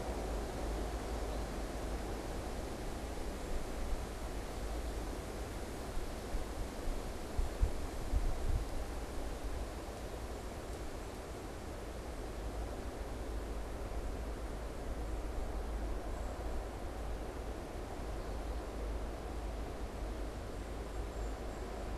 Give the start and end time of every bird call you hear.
0.0s-1.7s: American Goldfinch (Spinus tristis)
16.0s-16.5s: unidentified bird
20.9s-21.9s: unidentified bird

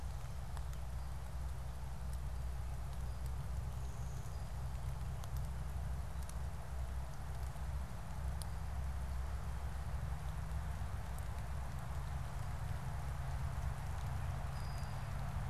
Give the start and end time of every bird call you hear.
14.3s-15.4s: Brown-headed Cowbird (Molothrus ater)

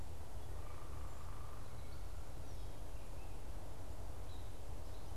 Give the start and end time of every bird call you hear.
0.0s-3.7s: Cedar Waxwing (Bombycilla cedrorum)
0.0s-5.2s: Gray Catbird (Dumetella carolinensis)
0.3s-1.8s: unidentified bird

